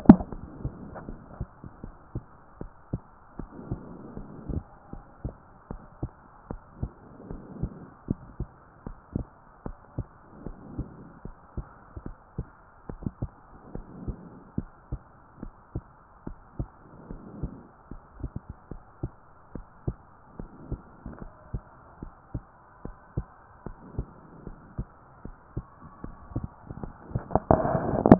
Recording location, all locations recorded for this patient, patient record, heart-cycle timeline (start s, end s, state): pulmonary valve (PV)
pulmonary valve (PV)+tricuspid valve (TV)+mitral valve (MV)
#Age: nan
#Sex: Female
#Height: nan
#Weight: nan
#Pregnancy status: True
#Murmur: Absent
#Murmur locations: nan
#Most audible location: nan
#Systolic murmur timing: nan
#Systolic murmur shape: nan
#Systolic murmur grading: nan
#Systolic murmur pitch: nan
#Systolic murmur quality: nan
#Diastolic murmur timing: nan
#Diastolic murmur shape: nan
#Diastolic murmur grading: nan
#Diastolic murmur pitch: nan
#Diastolic murmur quality: nan
#Outcome: Normal
#Campaign: 2014 screening campaign
0.00	1.73	unannotated
1.73	1.84	diastole
1.84	1.94	S1
1.94	2.14	systole
2.14	2.24	S2
2.24	2.60	diastole
2.60	2.72	S1
2.72	2.92	systole
2.92	3.02	S2
3.02	3.38	diastole
3.38	3.50	S1
3.50	3.70	systole
3.70	3.80	S2
3.80	4.16	diastole
4.16	4.28	S1
4.28	4.48	systole
4.48	4.64	S2
4.64	4.94	diastole
4.94	5.04	S1
5.04	5.24	systole
5.24	5.34	S2
5.34	5.70	diastole
5.70	5.82	S1
5.82	6.02	systole
6.02	6.10	S2
6.10	6.50	diastole
6.50	6.60	S1
6.60	6.80	systole
6.80	6.90	S2
6.90	7.30	diastole
7.30	7.42	S1
7.42	7.60	systole
7.60	7.72	S2
7.72	8.08	diastole
8.08	8.20	S1
8.20	8.38	systole
8.38	8.48	S2
8.48	8.86	diastole
8.86	8.98	S1
8.98	9.14	systole
9.14	9.26	S2
9.26	9.66	diastole
9.66	9.76	S1
9.76	9.96	systole
9.96	10.06	S2
10.06	10.46	diastole
10.46	10.56	S1
10.56	10.76	systole
10.76	10.86	S2
10.86	11.24	diastole
11.24	11.36	S1
11.36	11.56	systole
11.56	11.66	S2
11.66	12.04	diastole
12.04	12.14	S1
12.14	12.36	systole
12.36	12.46	S2
12.46	12.92	diastole
12.92	13.00	S1
13.00	13.22	systole
13.22	13.30	S2
13.30	13.74	diastole
13.74	13.86	S1
13.86	14.06	systole
14.06	14.16	S2
14.16	14.56	diastole
14.56	14.68	S1
14.68	14.90	systole
14.90	15.02	S2
15.02	15.42	diastole
15.42	15.52	S1
15.52	15.74	systole
15.74	15.84	S2
15.84	16.26	diastole
16.26	16.38	S1
16.38	16.58	systole
16.58	16.68	S2
16.68	17.10	diastole
17.10	17.20	S1
17.20	17.40	systole
17.40	17.52	S2
17.52	17.92	diastole
17.92	18.02	S1
18.02	18.20	systole
18.20	18.32	S2
18.32	18.72	diastole
18.72	18.82	S1
18.82	19.02	systole
19.02	19.12	S2
19.12	19.54	diastole
19.54	19.66	S1
19.66	19.86	systole
19.86	19.96	S2
19.96	20.40	diastole
20.40	20.50	S1
20.50	20.70	systole
20.70	20.80	S2
20.80	21.19	diastole
21.19	21.28	S1
21.28	21.52	systole
21.52	21.62	S2
21.62	22.00	diastole
22.00	22.12	S1
22.12	22.34	systole
22.34	22.44	S2
22.44	22.84	diastole
22.84	22.96	S1
22.96	23.16	systole
23.16	23.26	S2
23.26	23.66	diastole
23.66	23.78	S1
23.78	23.96	systole
23.96	24.06	S2
24.06	24.46	diastole
24.46	24.58	S1
24.58	24.78	systole
24.78	24.88	S2
24.88	25.24	diastole
25.24	25.36	S1
25.36	25.56	systole
25.56	25.66	S2
25.66	26.03	diastole
26.03	28.19	unannotated